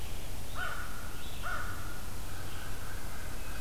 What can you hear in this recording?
Red-eyed Vireo, American Crow, Wood Thrush